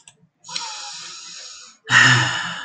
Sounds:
Sigh